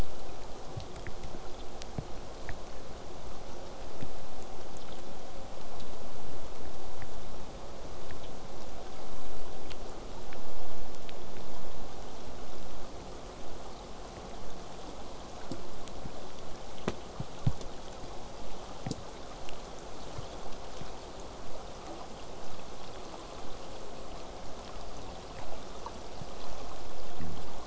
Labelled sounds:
17.4	22.4	vessel noise, 0 to 8.0 kHz

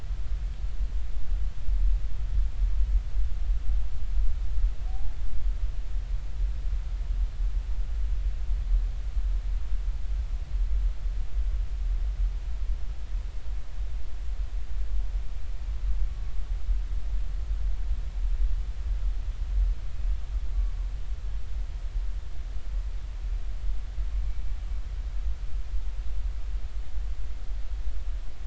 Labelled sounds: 4.9	5.1	humpback whale, 0.80 to 0.90 kHz
24.2	24.5	humpback whale, 2.2 to 2.4 kHz

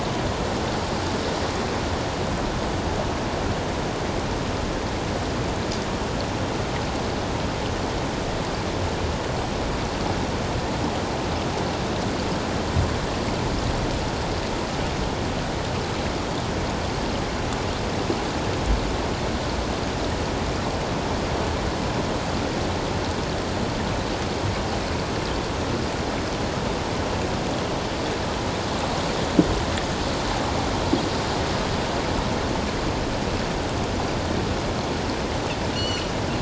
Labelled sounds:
35.7	36.1	Pacific white-sided dolphin, 2.7 to 7.4 kHz

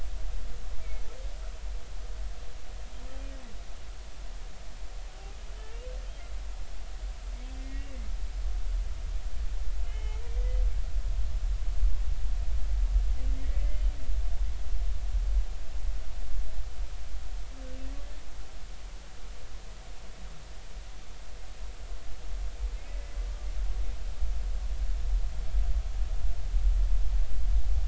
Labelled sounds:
7.6	8.0	humpback whale, 1.9 to 2.3 kHz
9.9	10.2	humpback whale, 0.80 to 3.1 kHz
13.6	13.8	humpback whale, 2.0 to 2.1 kHz

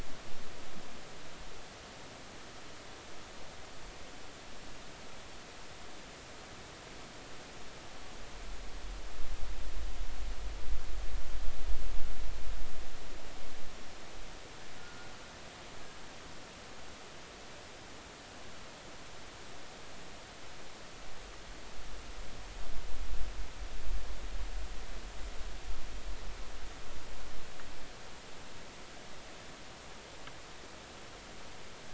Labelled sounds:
14.8	15.1	killer whale, Bigg's (transient), 1.4 to 1.5 kHz

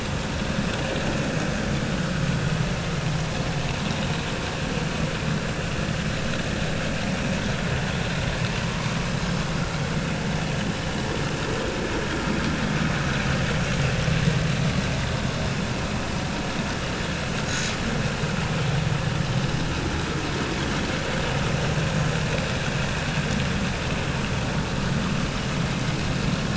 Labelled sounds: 8.6	8.9	vessel noise, 0.93 to 1.2 kHz
17.5	17.7	vessel noise, 6.3 to 6.9 kHz

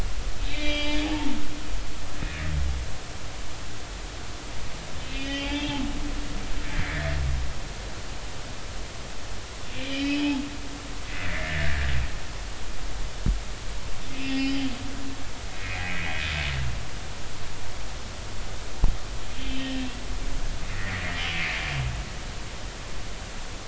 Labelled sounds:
0.5	2.0	humpback whale, 2.2 to 5.1 kHz
5.0	5.8	humpback whale, 0.80 to 3.3 kHz
9.8	10.4	humpback whale, 0.80 to 4.9 kHz
11.1	11.9	humpback whale, 1.5 to 2.1 kHz
14.1	14.7	humpback whale, 2.5 to 5.2 kHz
15.6	16.1	humpback whale, 1.9 to 2.6 kHz
19.4	19.9	humpback whale, 1.8 to 3.2 kHz
20.7	21.6	humpback whale, 1.8 to 2.7 kHz

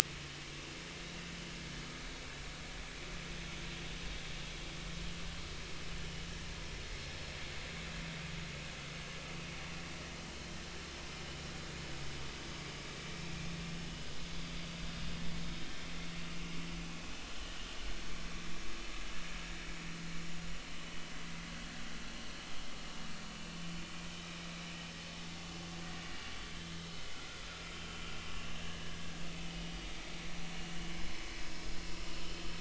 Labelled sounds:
12.5	12.7	vessel noise, 2.2 to 2.4 kHz
28.6	29.0	vessel noise, 1.6 to 3.0 kHz

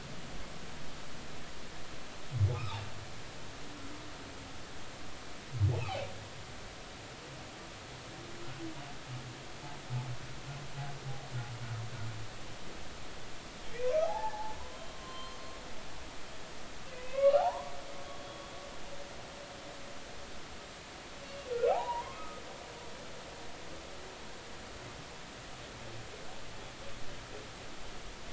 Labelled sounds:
13.7	14.6	humpback whale, 0.80 to 2.6 kHz
14.9	15.4	humpback whale, 0.99 to 3.2 kHz
17.0	17.7	humpback whale, 0.80 to 2.9 kHz
18.2	18.4	humpback whale, 3.3 to 3.4 kHz
21.5	22.4	humpback whale, 0.80 to 1.5 kHz

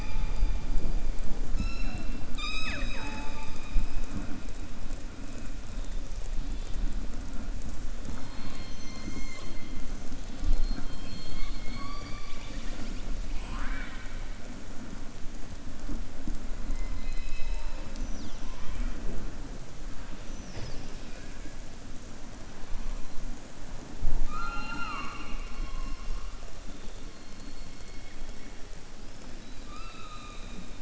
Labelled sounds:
2.2	3.0	killer whale, southern resident, 0.57 to 7.7 kHz
13.2	14.2	killer whale, southern resident, 0.67 to 3.9 kHz
29.3	30.8	killer whale, southern resident, 1.2 to 5.0 kHz

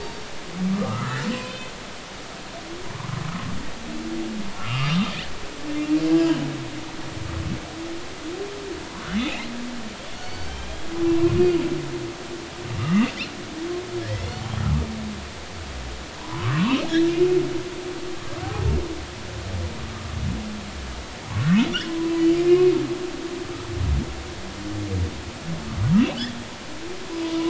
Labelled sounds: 0.0	1.7	humpback whale, 1.1 to 5.6 kHz
4.6	5.0	humpback whale, 1.1 to 2.9 kHz
6.1	6.4	humpback whale, 1.6 to 1.7 kHz
10.1	10.8	humpback whale, 2.3 to 4.7 kHz
12.8	13.1	humpback whale, 1.1 to 2.8 kHz
14.0	14.3	humpback whale, 1.6 to 2.2 kHz
16.2	16.9	humpback whale, 0.90 to 3.2 kHz
21.3	22.7	humpback whale, 0.93 to 2.6 kHz

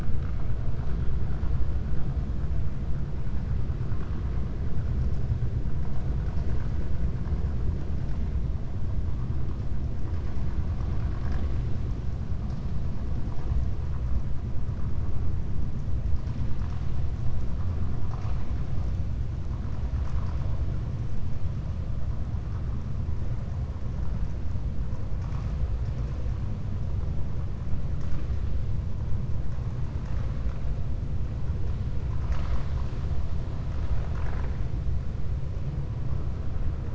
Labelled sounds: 33.7	34.6	vessel noise, 0.64 to 3.8 kHz

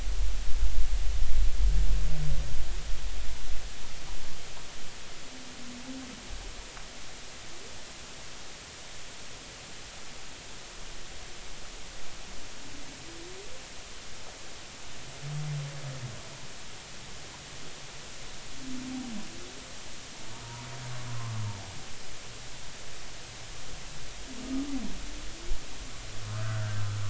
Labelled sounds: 21.1	21.3	humpback whale, 0.96 to 1.2 kHz
26.3	26.8	humpback whale, 1.2 to 1.8 kHz

